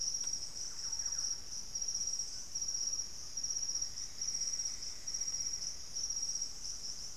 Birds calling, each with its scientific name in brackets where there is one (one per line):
Plumbeous Antbird (Myrmelastes hyperythrus)
Great Antshrike (Taraba major)
unidentified bird
Thrush-like Wren (Campylorhynchus turdinus)